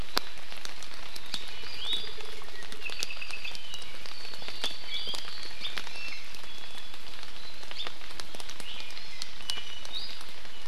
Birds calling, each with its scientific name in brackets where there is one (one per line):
Hawaii Amakihi (Chlorodrepanis virens)
Iiwi (Drepanis coccinea)
Apapane (Himatione sanguinea)